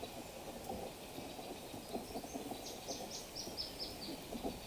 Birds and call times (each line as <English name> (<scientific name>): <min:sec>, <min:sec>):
Brown Woodland-Warbler (Phylloscopus umbrovirens): 0:03.3